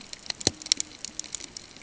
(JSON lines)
{"label": "ambient", "recorder": "HydroMoth"}